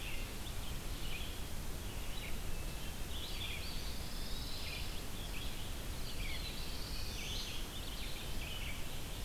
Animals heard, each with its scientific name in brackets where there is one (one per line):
Black-throated Blue Warbler (Setophaga caerulescens)
Wood Thrush (Hylocichla mustelina)
Eastern Wood-Pewee (Contopus virens)
Pine Warbler (Setophaga pinus)
Red-eyed Vireo (Vireo olivaceus)